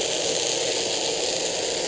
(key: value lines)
label: anthrophony, boat engine
recorder: HydroMoth